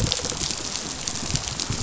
{"label": "biophony, rattle response", "recorder": "SoundTrap 500"}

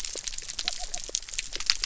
{"label": "biophony", "recorder": "SoundTrap 300"}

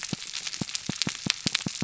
{"label": "biophony, pulse", "recorder": "SoundTrap 300"}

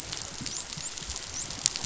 {"label": "biophony, dolphin", "recorder": "SoundTrap 500"}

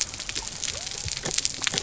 {"label": "biophony", "recorder": "SoundTrap 300"}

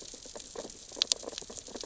{"label": "biophony, sea urchins (Echinidae)", "recorder": "SoundTrap 600 or HydroMoth"}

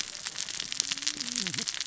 {"label": "biophony, cascading saw", "recorder": "SoundTrap 600 or HydroMoth"}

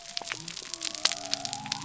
{"label": "biophony", "recorder": "SoundTrap 300"}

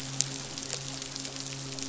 {"label": "biophony, midshipman", "recorder": "SoundTrap 500"}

